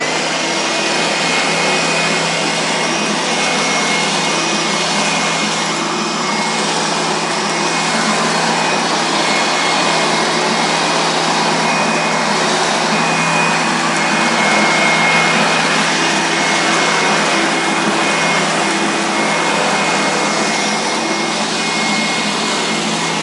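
0.0s A vacuum cleaner is running. 23.2s

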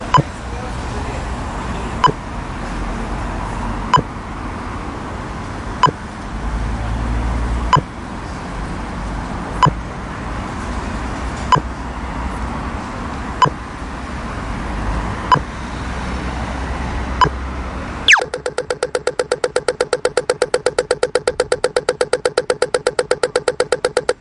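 0.0s Periodic measured beeping sounds. 18.3s
18.3s Quick, repeated beeping sounds. 24.2s

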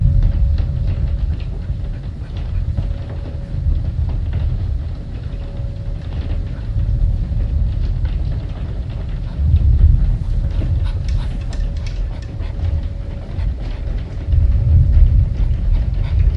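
0.0s Thunder rumbles muffled. 16.4s

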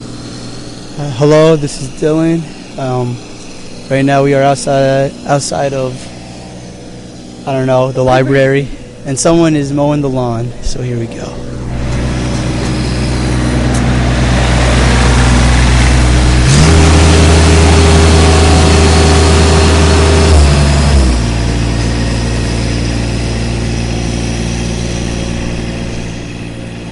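0.9s A man is speaking in English. 11.1s
11.4s Someone is mowing the lawn. 26.9s

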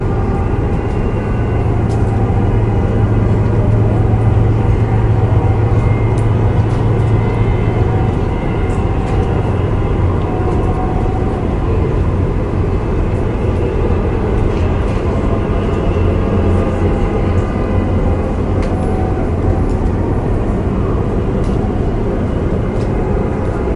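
0.1s A car engine runs steadily while car horns sound in the distance. 23.8s

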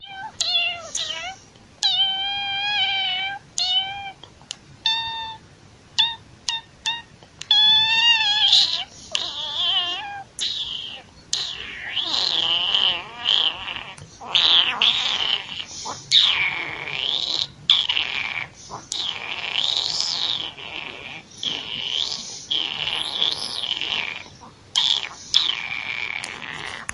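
0.3s A cat meows repeatedly with quick, sharp sounds. 1.5s
1.8s A cat is meowing with long, drawn-out sounds. 3.5s
3.6s A cat meows in a medium-length, high-pitched tone. 4.4s
4.9s A cat meows shortly and sharply. 5.5s
5.8s A cat meows repeatedly with quick, sharp sounds. 7.2s
7.3s A cat is meowing with alternating loud and soft tones accompanied by a gurgling sound. 26.9s

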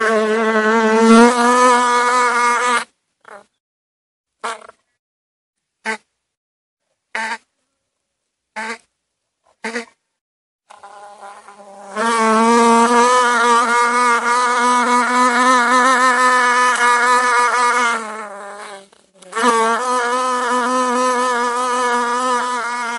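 0.0s A fly or bee buzzes loudly and close by, sometimes continuously and sometimes intermittently. 23.0s

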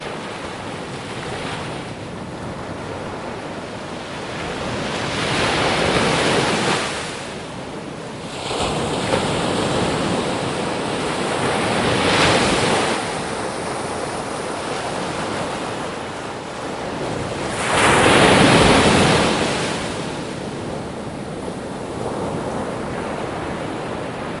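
0.1s Slow splashing of water near the seashore and wind blowing. 4.1s
4.4s Loud splashing of water near the seashore. 7.1s
8.3s Loud water splashing repeatedly near the seashore. 13.1s
13.3s Slow splashing of water near the seashore. 17.4s
17.5s Loud splashing of water near the seashore at intervals. 20.1s

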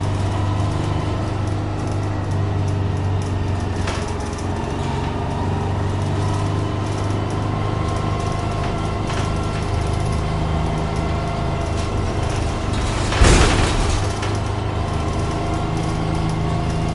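0.2s A bus engine is running. 16.8s

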